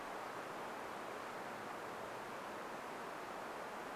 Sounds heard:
forest ambience